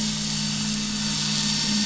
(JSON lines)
{"label": "anthrophony, boat engine", "recorder": "SoundTrap 500"}